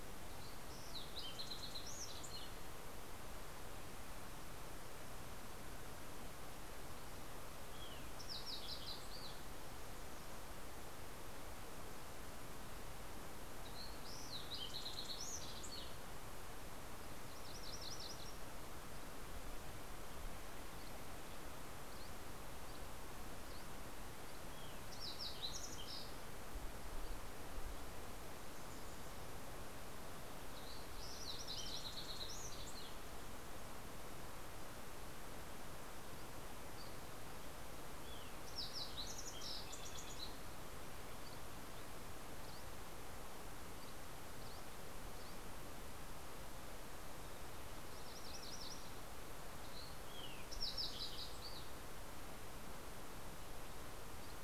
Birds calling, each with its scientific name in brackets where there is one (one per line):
Dusky Flycatcher (Empidonax oberholseri)
Fox Sparrow (Passerella iliaca)
MacGillivray's Warbler (Geothlypis tolmiei)